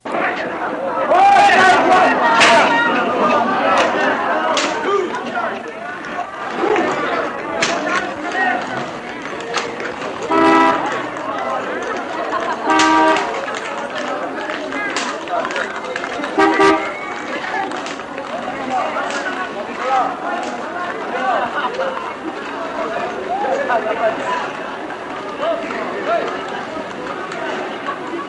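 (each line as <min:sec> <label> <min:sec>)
0:00.0 Men are yelling in an irritated tone, muffled by crowd noise. 0:05.9
0:06.1 City noise with the hum of cars and some clicking sounds. 0:09.1
0:09.1 Technical signal accompanied by the sound of a receipt being printed. 0:10.0
0:10.1 A car honks once against a background of technical noise. 0:11.1
0:11.2 The city crowd is humming with a woman laughing briefly at the end. 0:12.5
0:12.5 A car honks once. 0:13.5
0:13.5 A woman vendor is yelling amid heavy crowd noise in the city center. 0:16.1
0:16.1 A car horn sounds twice in quick succession against city noise. 0:17.1
0:17.1 The crowd hums indistinctly with traffic noise and clicking in the background. 0:28.2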